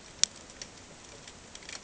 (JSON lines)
{"label": "ambient", "recorder": "HydroMoth"}